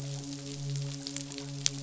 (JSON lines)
{"label": "biophony, midshipman", "recorder": "SoundTrap 500"}